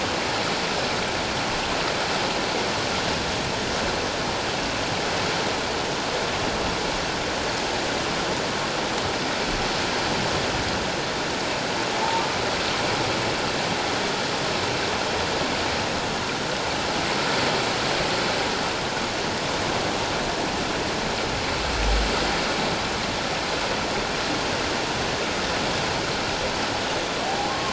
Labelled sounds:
27.2	27.7	humpback whale, 0.78 to 1.1 kHz

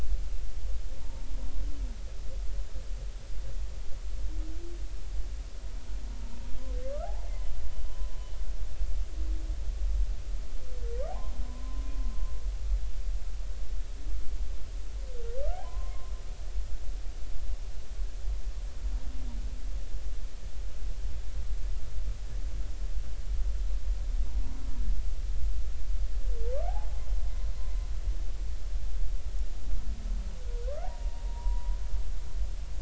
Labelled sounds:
1.0	1.2	humpback whale, 0.86 to 0.99 kHz
6.9	7.5	humpback whale, 1.1 to 2.2 kHz
7.9	8.1	humpback whale, 0.99 to 1.1 kHz
11.1	11.8	humpback whale, 0.80 to 1.1 kHz
15.4	16.1	humpback whale, 0.93 to 1.7 kHz
30.7	31.7	humpback whale, 0.90 to 1.6 kHz

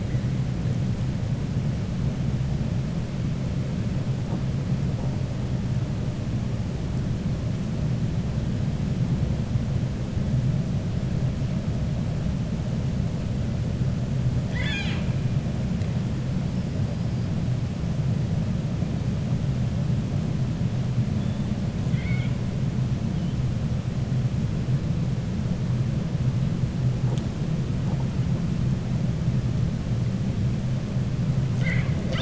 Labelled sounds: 14.4	15.1	killer whale, 0.88 to 7.6 kHz
21.8	22.4	killer whale, 1.4 to 4.5 kHz

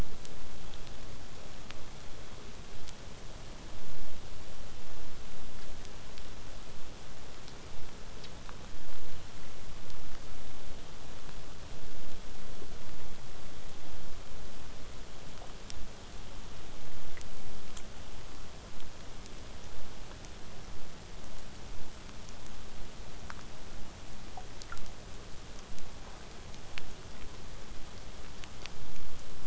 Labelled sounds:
18.7	23.7	vessel noise, 0 to 8.0 kHz

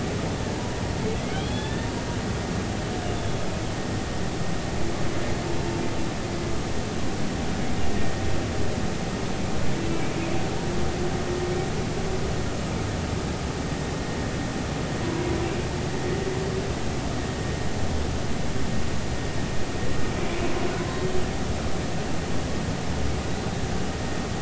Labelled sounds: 1.3	1.9	humpback whale, 1.7 to 3.7 kHz
3.2	3.4	humpback whale, 3.4 to 3.6 kHz
9.9	10.1	humpback whale, 2.2 to 2.4 kHz
15.0	15.4	humpback whale, 0.93 to 1.0 kHz

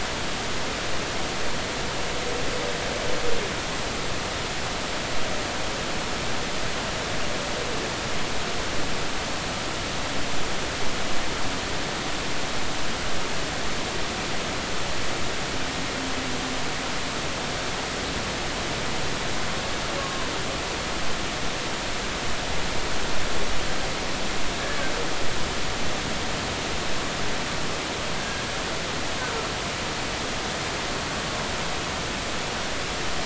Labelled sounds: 20.0	20.3	humpback whale, 0.96 to 1.2 kHz
28.2	28.4	humpback whale, 1.6 to 1.7 kHz

